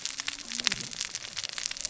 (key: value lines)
label: biophony, cascading saw
recorder: SoundTrap 600 or HydroMoth